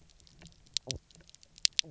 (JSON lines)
{"label": "biophony, knock croak", "recorder": "SoundTrap 300"}